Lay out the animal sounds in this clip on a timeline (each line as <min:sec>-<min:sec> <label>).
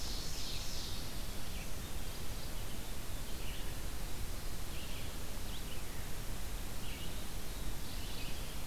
0:00.0-0:01.5 Ovenbird (Seiurus aurocapilla)
0:00.0-0:07.7 Red-eyed Vireo (Vireo olivaceus)
0:01.6-0:02.7 Mourning Warbler (Geothlypis philadelphia)
0:07.6-0:08.5 Mourning Warbler (Geothlypis philadelphia)